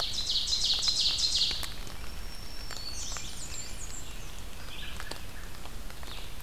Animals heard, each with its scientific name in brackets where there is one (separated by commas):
Blackburnian Warbler (Setophaga fusca), American Robin (Turdus migratorius), Red-eyed Vireo (Vireo olivaceus), Yellow Warbler (Setophaga petechia), Ovenbird (Seiurus aurocapilla), Black-throated Green Warbler (Setophaga virens)